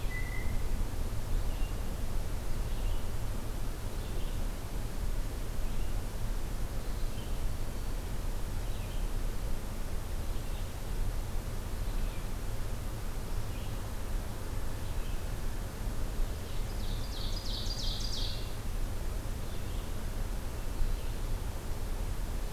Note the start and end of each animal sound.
0.0s-0.7s: Blue Jay (Cyanocitta cristata)
0.0s-22.5s: Red-eyed Vireo (Vireo olivaceus)
7.3s-8.0s: Black-throated Green Warbler (Setophaga virens)
16.4s-18.6s: Ovenbird (Seiurus aurocapilla)

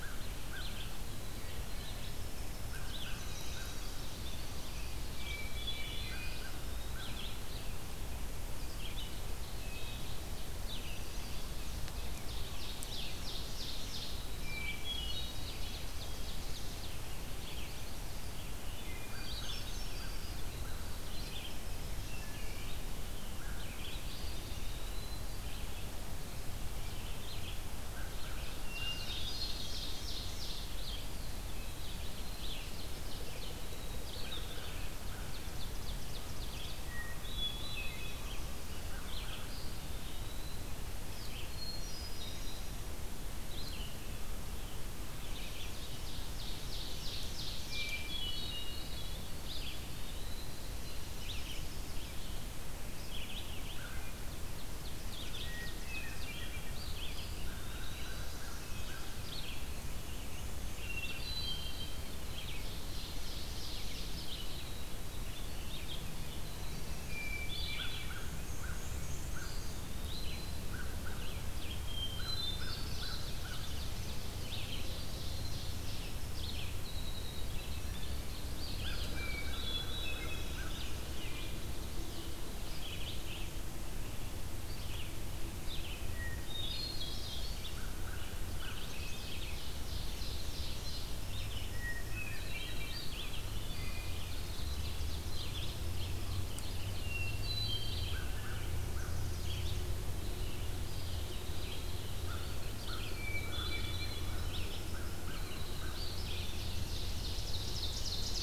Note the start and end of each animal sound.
0.0s-3.2s: Red-eyed Vireo (Vireo olivaceus)
0.0s-3.8s: American Crow (Corvus brachyrhynchos)
1.6s-5.4s: Winter Wren (Troglodytes hiemalis)
4.1s-62.8s: Red-eyed Vireo (Vireo olivaceus)
5.1s-6.4s: Hermit Thrush (Catharus guttatus)
6.1s-7.7s: Eastern Wood-Pewee (Contopus virens)
9.4s-10.4s: Wood Thrush (Hylocichla mustelina)
12.0s-14.3s: Ovenbird (Seiurus aurocapilla)
14.5s-15.5s: Hermit Thrush (Catharus guttatus)
15.2s-17.0s: Ovenbird (Seiurus aurocapilla)
18.7s-19.1s: Wood Thrush (Hylocichla mustelina)
19.1s-20.4s: Hermit Thrush (Catharus guttatus)
21.9s-22.7s: Wood Thrush (Hylocichla mustelina)
23.9s-25.4s: Eastern Wood-Pewee (Contopus virens)
28.4s-29.6s: Hermit Thrush (Catharus guttatus)
28.7s-30.7s: Ovenbird (Seiurus aurocapilla)
30.9s-31.8s: Eastern Wood-Pewee (Contopus virens)
31.8s-33.6s: Ovenbird (Seiurus aurocapilla)
33.3s-35.4s: Winter Wren (Troglodytes hiemalis)
35.0s-36.8s: Ovenbird (Seiurus aurocapilla)
36.8s-38.2s: Hermit Thrush (Catharus guttatus)
39.5s-40.7s: Eastern Wood-Pewee (Contopus virens)
41.4s-42.9s: Hermit Thrush (Catharus guttatus)
45.0s-47.9s: Ovenbird (Seiurus aurocapilla)
47.9s-49.2s: Hermit Thrush (Catharus guttatus)
49.4s-50.6s: Eastern Wood-Pewee (Contopus virens)
53.7s-54.3s: American Crow (Corvus brachyrhynchos)
54.1s-56.4s: Ovenbird (Seiurus aurocapilla)
55.3s-56.3s: Hermit Thrush (Catharus guttatus)
56.5s-58.4s: Eastern Wood-Pewee (Contopus virens)
57.5s-59.2s: American Crow (Corvus brachyrhynchos)
60.6s-62.0s: Hermit Thrush (Catharus guttatus)
62.3s-64.3s: Ovenbird (Seiurus aurocapilla)
64.0s-108.4s: Red-eyed Vireo (Vireo olivaceus)
67.0s-68.2s: Hermit Thrush (Catharus guttatus)
67.6s-73.8s: American Crow (Corvus brachyrhynchos)
68.1s-69.9s: Black-and-white Warbler (Mniotilta varia)
69.2s-70.7s: Eastern Wood-Pewee (Contopus virens)
71.7s-73.1s: Hermit Thrush (Catharus guttatus)
72.9s-74.3s: Chestnut-sided Warbler (Setophaga pensylvanica)
74.5s-76.2s: Ovenbird (Seiurus aurocapilla)
76.0s-80.9s: Winter Wren (Troglodytes hiemalis)
79.1s-80.6s: Hermit Thrush (Catharus guttatus)
85.9s-87.6s: Hermit Thrush (Catharus guttatus)
87.7s-88.8s: American Crow (Corvus brachyrhynchos)
88.3s-89.3s: Chestnut-sided Warbler (Setophaga pensylvanica)
89.4s-91.3s: Ovenbird (Seiurus aurocapilla)
91.2s-96.4s: Winter Wren (Troglodytes hiemalis)
91.6s-93.0s: Hermit Thrush (Catharus guttatus)
93.5s-94.2s: Wood Thrush (Hylocichla mustelina)
95.1s-96.6s: Ovenbird (Seiurus aurocapilla)
96.9s-98.2s: Hermit Thrush (Catharus guttatus)
98.0s-99.1s: American Crow (Corvus brachyrhynchos)
98.6s-99.9s: Chestnut-sided Warbler (Setophaga pensylvanica)
100.7s-102.3s: Eastern Wood-Pewee (Contopus virens)
102.1s-105.9s: American Crow (Corvus brachyrhynchos)
103.0s-104.4s: Hermit Thrush (Catharus guttatus)
104.2s-106.6s: Winter Wren (Troglodytes hiemalis)
106.5s-108.4s: Ovenbird (Seiurus aurocapilla)

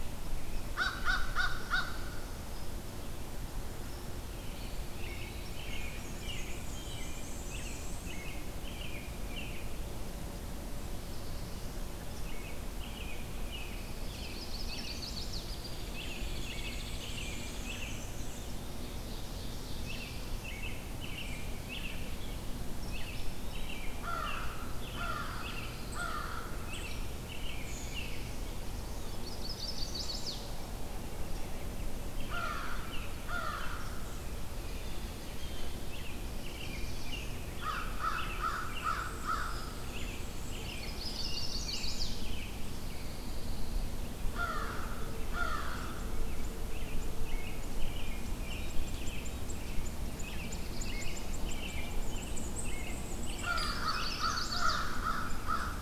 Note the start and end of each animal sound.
0.7s-1.9s: American Crow (Corvus brachyrhynchos)
2.4s-2.7s: Hairy Woodpecker (Dryobates villosus)
3.9s-4.0s: Hairy Woodpecker (Dryobates villosus)
4.3s-9.6s: American Robin (Turdus migratorius)
4.4s-5.7s: Eastern Wood-Pewee (Contopus virens)
5.7s-8.1s: Black-and-white Warbler (Mniotilta varia)
10.8s-11.9s: Black-throated Blue Warbler (Setophaga caerulescens)
12.1s-15.2s: American Robin (Turdus migratorius)
13.6s-15.1s: Pine Warbler (Setophaga pinus)
13.9s-15.6s: Chestnut-sided Warbler (Setophaga pensylvanica)
15.5s-17.9s: Hairy Woodpecker (Dryobates villosus)
15.8s-18.1s: American Robin (Turdus migratorius)
15.9s-18.5s: Black-and-white Warbler (Mniotilta varia)
18.3s-20.2s: Ovenbird (Seiurus aurocapilla)
19.3s-20.6s: Black-throated Blue Warbler (Setophaga caerulescens)
19.8s-22.4s: American Robin (Turdus migratorius)
22.8s-28.3s: American Robin (Turdus migratorius)
22.9s-24.1s: Eastern Wood-Pewee (Contopus virens)
23.9s-26.6s: American Crow (Corvus brachyrhynchos)
24.9s-26.5s: Pine Warbler (Setophaga pinus)
26.8s-27.1s: Hairy Woodpecker (Dryobates villosus)
29.1s-30.4s: Chestnut-sided Warbler (Setophaga pensylvanica)
31.9s-34.0s: American Robin (Turdus migratorius)
32.2s-33.7s: American Crow (Corvus brachyrhynchos)
34.7s-35.6s: Blue Jay (Cyanocitta cristata)
35.8s-43.2s: American Robin (Turdus migratorius)
36.1s-37.4s: Black-throated Blue Warbler (Setophaga caerulescens)
37.6s-39.5s: American Crow (Corvus brachyrhynchos)
38.2s-40.9s: Black-and-white Warbler (Mniotilta varia)
39.5s-39.7s: Hairy Woodpecker (Dryobates villosus)
40.7s-42.1s: Chestnut-sided Warbler (Setophaga pensylvanica)
42.7s-43.9s: Pine Warbler (Setophaga pinus)
44.2s-45.9s: American Crow (Corvus brachyrhynchos)
46.3s-54.3s: American Robin (Turdus migratorius)
50.0s-51.4s: Black-throated Blue Warbler (Setophaga caerulescens)
52.0s-53.6s: Black-and-white Warbler (Mniotilta varia)
53.3s-55.8s: American Crow (Corvus brachyrhynchos)
53.5s-53.7s: Hairy Woodpecker (Dryobates villosus)
53.5s-54.9s: Chestnut-sided Warbler (Setophaga pensylvanica)

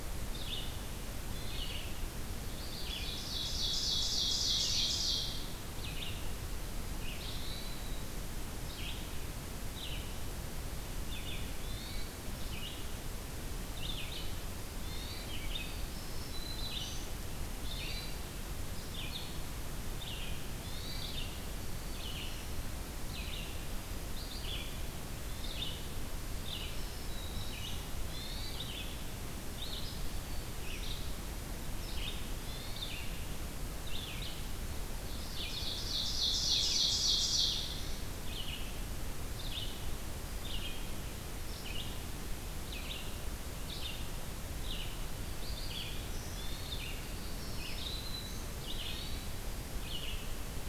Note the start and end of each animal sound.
0.0s-3.1s: Red-eyed Vireo (Vireo olivaceus)
1.2s-1.9s: Hermit Thrush (Catharus guttatus)
2.5s-5.5s: Ovenbird (Seiurus aurocapilla)
5.8s-50.4s: Red-eyed Vireo (Vireo olivaceus)
7.1s-8.0s: Hermit Thrush (Catharus guttatus)
11.5s-12.2s: Hermit Thrush (Catharus guttatus)
14.7s-15.4s: Hermit Thrush (Catharus guttatus)
15.5s-17.0s: Black-throated Green Warbler (Setophaga virens)
17.6s-18.2s: Hermit Thrush (Catharus guttatus)
20.4s-21.2s: Hermit Thrush (Catharus guttatus)
21.3s-22.7s: Black-throated Green Warbler (Setophaga virens)
26.6s-27.9s: Black-throated Green Warbler (Setophaga virens)
28.0s-28.6s: Hermit Thrush (Catharus guttatus)
29.7s-30.9s: Black-throated Green Warbler (Setophaga virens)
32.4s-33.1s: Hermit Thrush (Catharus guttatus)
34.9s-37.7s: Ovenbird (Seiurus aurocapilla)
45.2s-46.5s: Black-throated Green Warbler (Setophaga virens)
46.2s-47.0s: Hermit Thrush (Catharus guttatus)
46.9s-48.5s: Black-throated Green Warbler (Setophaga virens)
48.5s-49.5s: Hermit Thrush (Catharus guttatus)

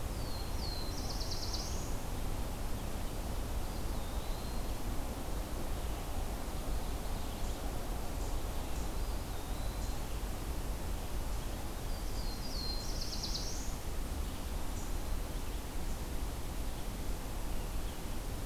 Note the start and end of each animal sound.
0.0s-2.0s: Black-throated Blue Warbler (Setophaga caerulescens)
3.5s-4.8s: Eastern Wood-Pewee (Contopus virens)
5.7s-7.7s: Ovenbird (Seiurus aurocapilla)
8.8s-10.1s: Eastern Wood-Pewee (Contopus virens)
11.8s-13.8s: Black-throated Blue Warbler (Setophaga caerulescens)

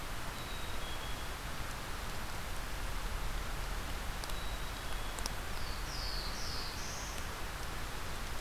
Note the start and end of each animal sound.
0.0s-1.5s: Black-capped Chickadee (Poecile atricapillus)
4.0s-5.4s: Black-capped Chickadee (Poecile atricapillus)
5.3s-7.3s: Black-throated Blue Warbler (Setophaga caerulescens)

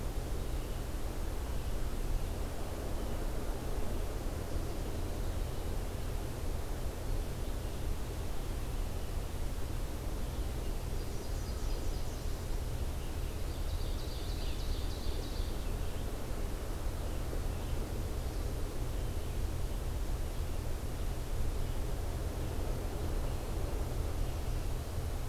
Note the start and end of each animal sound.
11.1s-12.5s: Nashville Warbler (Leiothlypis ruficapilla)
13.6s-15.6s: Ovenbird (Seiurus aurocapilla)

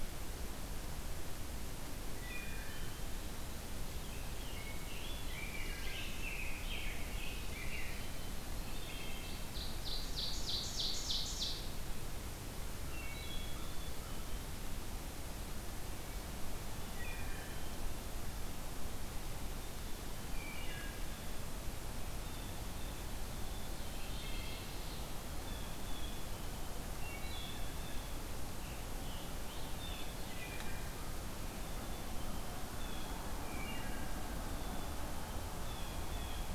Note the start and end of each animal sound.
2.0s-3.3s: Wood Thrush (Hylocichla mustelina)
4.3s-8.3s: Rose-breasted Grosbeak (Pheucticus ludovicianus)
8.3s-9.9s: Wood Thrush (Hylocichla mustelina)
8.7s-12.0s: Ovenbird (Seiurus aurocapilla)
12.8s-14.2s: Wood Thrush (Hylocichla mustelina)
16.7s-17.7s: Wood Thrush (Hylocichla mustelina)
20.3s-21.1s: Wood Thrush (Hylocichla mustelina)
22.2s-23.2s: Blue Jay (Cyanocitta cristata)
23.4s-25.4s: Ovenbird (Seiurus aurocapilla)
23.9s-24.7s: Wood Thrush (Hylocichla mustelina)
25.4s-26.2s: Blue Jay (Cyanocitta cristata)
27.0s-27.6s: Wood Thrush (Hylocichla mustelina)
27.3s-28.3s: Blue Jay (Cyanocitta cristata)
28.5s-30.6s: Scarlet Tanager (Piranga olivacea)
30.3s-31.0s: Wood Thrush (Hylocichla mustelina)
33.3s-34.4s: Wood Thrush (Hylocichla mustelina)
35.6s-36.5s: Blue Jay (Cyanocitta cristata)

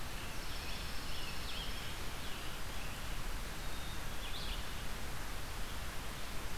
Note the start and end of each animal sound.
0.0s-6.6s: Red-eyed Vireo (Vireo olivaceus)
0.0s-3.0s: Scarlet Tanager (Piranga olivacea)
0.1s-1.8s: Pine Warbler (Setophaga pinus)
3.4s-4.5s: Black-capped Chickadee (Poecile atricapillus)

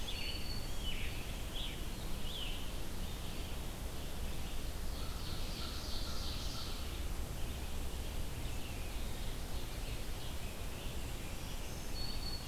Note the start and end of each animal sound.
0.0s-1.1s: Black-throated Green Warbler (Setophaga virens)
0.0s-2.7s: Scarlet Tanager (Piranga olivacea)
0.0s-12.5s: Red-eyed Vireo (Vireo olivaceus)
4.5s-7.2s: Ovenbird (Seiurus aurocapilla)
8.6s-10.5s: Ovenbird (Seiurus aurocapilla)
9.8s-12.5s: Scarlet Tanager (Piranga olivacea)
11.2s-12.5s: Black-throated Green Warbler (Setophaga virens)

